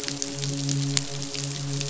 {"label": "biophony, midshipman", "recorder": "SoundTrap 500"}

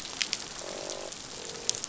{"label": "biophony, croak", "recorder": "SoundTrap 500"}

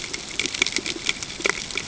{"label": "ambient", "recorder": "HydroMoth"}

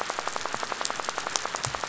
{"label": "biophony, rattle", "recorder": "SoundTrap 500"}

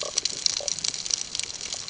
{"label": "ambient", "recorder": "HydroMoth"}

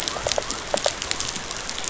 {"label": "biophony", "recorder": "SoundTrap 500"}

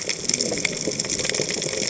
{"label": "biophony, cascading saw", "recorder": "HydroMoth"}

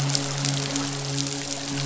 {"label": "biophony, midshipman", "recorder": "SoundTrap 500"}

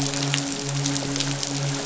{"label": "biophony, midshipman", "recorder": "SoundTrap 500"}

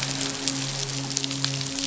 {"label": "biophony, midshipman", "recorder": "SoundTrap 500"}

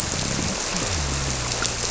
{"label": "biophony", "recorder": "SoundTrap 300"}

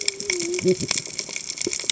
{"label": "biophony, cascading saw", "recorder": "HydroMoth"}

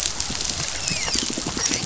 {"label": "biophony, dolphin", "recorder": "SoundTrap 500"}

